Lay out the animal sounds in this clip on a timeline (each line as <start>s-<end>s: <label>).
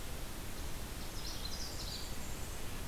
1.0s-2.1s: Magnolia Warbler (Setophaga magnolia)